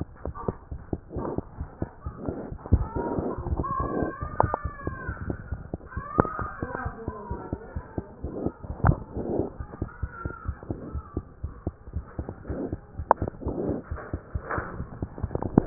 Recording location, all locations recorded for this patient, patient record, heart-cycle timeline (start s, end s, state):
pulmonary valve (PV)
aortic valve (AV)+pulmonary valve (PV)+tricuspid valve (TV)+mitral valve (MV)
#Age: Infant
#Sex: Female
#Height: 67.0 cm
#Weight: 9.46 kg
#Pregnancy status: False
#Murmur: Absent
#Murmur locations: nan
#Most audible location: nan
#Systolic murmur timing: nan
#Systolic murmur shape: nan
#Systolic murmur grading: nan
#Systolic murmur pitch: nan
#Systolic murmur quality: nan
#Diastolic murmur timing: nan
#Diastolic murmur shape: nan
#Diastolic murmur grading: nan
#Diastolic murmur pitch: nan
#Diastolic murmur quality: nan
#Outcome: Abnormal
#Campaign: 2015 screening campaign
0.00	6.40	unannotated
6.40	6.50	S1
6.50	6.60	systole
6.60	6.68	S2
6.68	6.84	diastole
6.84	6.96	S1
6.96	7.04	systole
7.04	7.14	S2
7.14	7.29	diastole
7.29	7.42	S1
7.42	7.50	systole
7.50	7.60	S2
7.60	7.76	diastole
7.76	7.84	S1
7.84	7.94	systole
7.94	8.04	S2
8.04	8.24	diastole
8.24	8.34	S1
8.34	8.42	systole
8.42	8.52	S2
8.52	8.68	diastole
8.68	8.76	S1
8.76	8.86	systole
8.86	8.96	S2
8.96	9.14	diastole
9.14	9.28	S1
9.28	9.32	systole
9.32	9.46	S2
9.46	9.60	diastole
9.60	9.68	S1
9.68	9.78	systole
9.78	9.88	S2
9.88	10.01	diastole
10.01	10.10	S1
10.10	10.22	systole
10.22	10.32	S2
10.32	10.48	diastole
10.48	10.56	S1
10.56	10.68	systole
10.68	10.78	S2
10.78	10.92	diastole
10.92	11.04	S1
11.04	11.14	systole
11.14	11.24	S2
11.24	11.42	diastole
11.42	11.52	S1
11.52	11.64	systole
11.64	11.74	S2
11.74	11.94	diastole
11.94	12.06	S1
12.06	12.17	systole
12.17	12.25	S2
12.25	12.48	diastole
12.48	12.62	S1
12.62	12.70	systole
12.70	12.80	S2
12.80	13.00	diastole
13.00	13.08	S1
13.08	13.20	systole
13.20	13.30	S2
13.30	13.44	diastole
13.44	13.58	S1
13.58	13.64	systole
13.64	13.78	S2
13.78	13.90	diastole
13.90	14.02	S1
14.02	14.11	systole
14.11	14.22	S2
14.22	14.33	diastole
14.33	14.43	S1
14.43	14.56	systole
14.56	14.66	S2
14.66	14.79	diastole
14.79	14.90	S1
14.90	15.00	systole
15.00	15.10	S2
15.10	15.22	diastole
15.22	15.66	unannotated